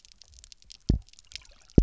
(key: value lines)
label: biophony, double pulse
recorder: SoundTrap 300